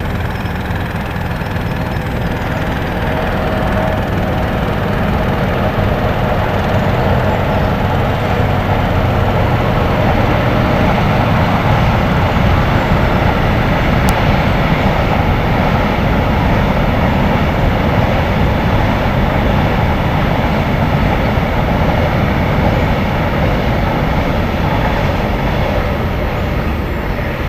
Is a motor running?
yes